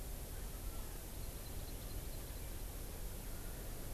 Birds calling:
Hawaii Amakihi (Chlorodrepanis virens)

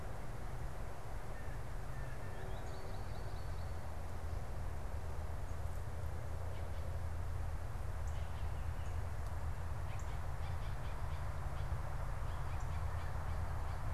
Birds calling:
Baltimore Oriole (Icterus galbula), American Goldfinch (Spinus tristis), Blue Jay (Cyanocitta cristata), Northern Cardinal (Cardinalis cardinalis)

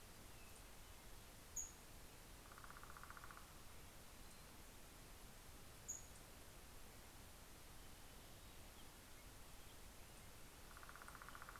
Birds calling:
Black-headed Grosbeak (Pheucticus melanocephalus), Northern Flicker (Colaptes auratus), Pacific-slope Flycatcher (Empidonax difficilis)

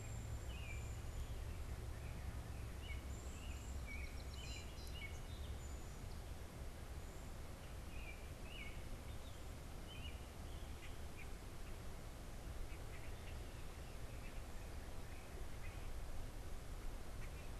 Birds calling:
Cedar Waxwing (Bombycilla cedrorum), Song Sparrow (Melospiza melodia), American Robin (Turdus migratorius), Common Grackle (Quiscalus quiscula)

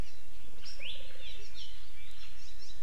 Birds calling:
Hawaii Amakihi (Chlorodrepanis virens)

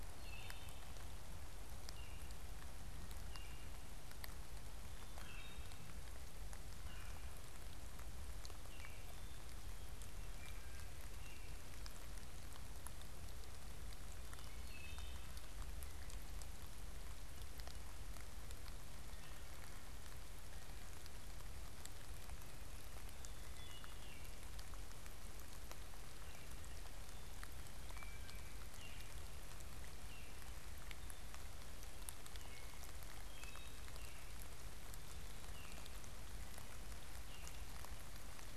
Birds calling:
Wood Thrush (Hylocichla mustelina), Baltimore Oriole (Icterus galbula)

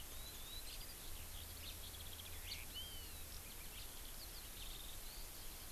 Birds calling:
Eurasian Skylark (Alauda arvensis)

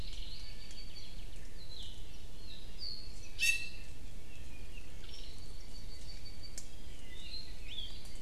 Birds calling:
Apapane (Himatione sanguinea), Hawaii Akepa (Loxops coccineus), Iiwi (Drepanis coccinea)

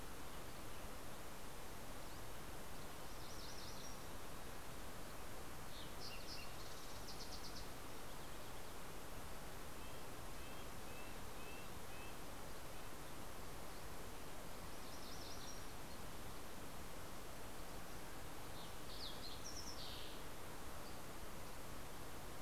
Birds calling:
Fox Sparrow (Passerella iliaca), Red-breasted Nuthatch (Sitta canadensis), MacGillivray's Warbler (Geothlypis tolmiei)

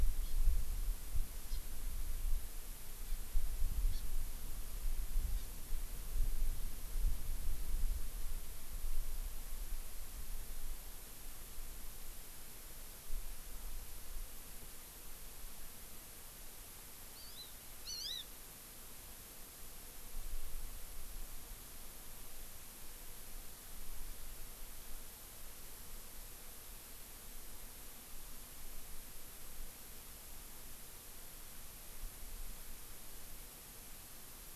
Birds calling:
Hawaii Amakihi (Chlorodrepanis virens)

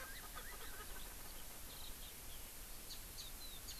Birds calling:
House Finch (Haemorhous mexicanus), Erckel's Francolin (Pternistis erckelii), Eurasian Skylark (Alauda arvensis)

